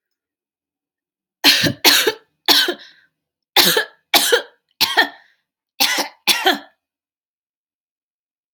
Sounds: Cough